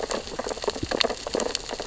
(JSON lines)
{"label": "biophony, sea urchins (Echinidae)", "recorder": "SoundTrap 600 or HydroMoth"}